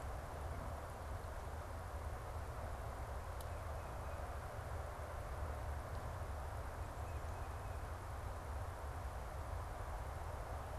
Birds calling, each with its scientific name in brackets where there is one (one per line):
Tufted Titmouse (Baeolophus bicolor)